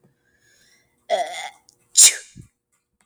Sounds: Sneeze